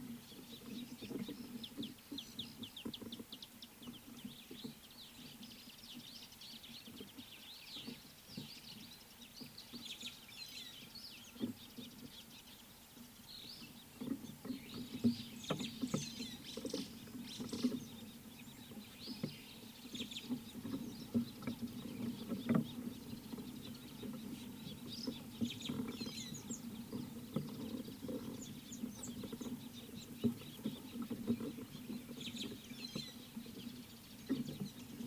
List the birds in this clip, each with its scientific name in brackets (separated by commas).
White-browed Sparrow-Weaver (Plocepasser mahali), Scarlet-chested Sunbird (Chalcomitra senegalensis), Speckled Mousebird (Colius striatus), White-headed Buffalo-Weaver (Dinemellia dinemelli)